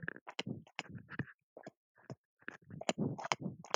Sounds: Throat clearing